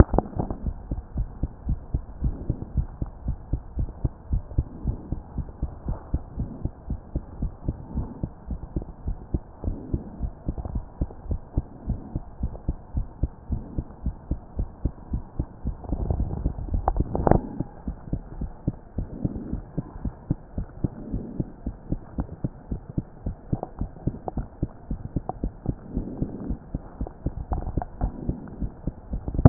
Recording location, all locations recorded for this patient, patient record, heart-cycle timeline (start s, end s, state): mitral valve (MV)
aortic valve (AV)+pulmonary valve (PV)+tricuspid valve (TV)+tricuspid valve (TV)+mitral valve (MV)
#Age: Child
#Sex: Male
#Height: 107.0 cm
#Weight: 18.2 kg
#Pregnancy status: False
#Murmur: Absent
#Murmur locations: nan
#Most audible location: nan
#Systolic murmur timing: nan
#Systolic murmur shape: nan
#Systolic murmur grading: nan
#Systolic murmur pitch: nan
#Systolic murmur quality: nan
#Diastolic murmur timing: nan
#Diastolic murmur shape: nan
#Diastolic murmur grading: nan
#Diastolic murmur pitch: nan
#Diastolic murmur quality: nan
#Outcome: Normal
#Campaign: 2014 screening campaign
0.00	0.12	diastole
0.12	0.24	S1
0.24	0.38	systole
0.38	0.48	S2
0.48	0.64	diastole
0.64	0.76	S1
0.76	0.90	systole
0.90	1.00	S2
1.00	1.16	diastole
1.16	1.28	S1
1.28	1.42	systole
1.42	1.50	S2
1.50	1.66	diastole
1.66	1.78	S1
1.78	1.92	systole
1.92	2.02	S2
2.02	2.22	diastole
2.22	2.36	S1
2.36	2.48	systole
2.48	2.56	S2
2.56	2.76	diastole
2.76	2.88	S1
2.88	3.00	systole
3.00	3.08	S2
3.08	3.26	diastole
3.26	3.38	S1
3.38	3.52	systole
3.52	3.60	S2
3.60	3.78	diastole
3.78	3.90	S1
3.90	4.02	systole
4.02	4.12	S2
4.12	4.30	diastole
4.30	4.44	S1
4.44	4.56	systole
4.56	4.66	S2
4.66	4.84	diastole
4.84	4.98	S1
4.98	5.10	systole
5.10	5.20	S2
5.20	5.36	diastole
5.36	5.46	S1
5.46	5.62	systole
5.62	5.70	S2
5.70	5.86	diastole
5.86	5.98	S1
5.98	6.12	systole
6.12	6.22	S2
6.22	6.38	diastole
6.38	6.50	S1
6.50	6.62	systole
6.62	6.72	S2
6.72	6.88	diastole
6.88	7.00	S1
7.00	7.14	systole
7.14	7.22	S2
7.22	7.40	diastole
7.40	7.52	S1
7.52	7.66	systole
7.66	7.76	S2
7.76	7.96	diastole
7.96	8.08	S1
8.08	8.22	systole
8.22	8.30	S2
8.30	8.48	diastole
8.48	8.60	S1
8.60	8.74	systole
8.74	8.84	S2
8.84	9.06	diastole
9.06	9.16	S1
9.16	9.32	systole
9.32	9.42	S2
9.42	9.66	diastole
9.66	9.78	S1
9.78	9.92	systole
9.92	10.02	S2
10.02	10.20	diastole
10.20	10.32	S1
10.32	10.46	systole
10.46	10.56	S2
10.56	10.72	diastole
10.72	10.84	S1
10.84	11.00	systole
11.00	11.08	S2
11.08	11.28	diastole
11.28	11.40	S1
11.40	11.56	systole
11.56	11.64	S2
11.64	11.88	diastole
11.88	12.00	S1
12.00	12.14	systole
12.14	12.22	S2
12.22	12.42	diastole
12.42	12.52	S1
12.52	12.66	systole
12.66	12.76	S2
12.76	12.96	diastole
12.96	13.06	S1
13.06	13.22	systole
13.22	13.30	S2
13.30	13.50	diastole
13.50	13.62	S1
13.62	13.76	systole
13.76	13.86	S2
13.86	14.04	diastole
14.04	14.16	S1
14.16	14.30	systole
14.30	14.40	S2
14.40	14.58	diastole
14.58	14.68	S1
14.68	14.84	systole
14.84	14.92	S2
14.92	15.12	diastole
15.12	15.24	S1
15.24	15.38	systole
15.38	15.48	S2
15.48	15.68	diastole
15.68	15.76	S1
15.76	15.90	systole
15.90	15.98	S2
15.98	16.14	diastole
16.14	16.28	S1
16.28	16.42	systole
16.42	16.52	S2
16.52	16.72	diastole